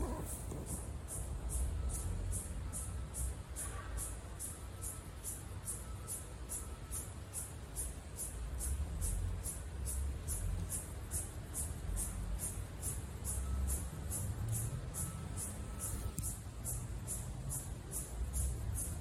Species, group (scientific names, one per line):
Yoyetta repetens
Cicadidae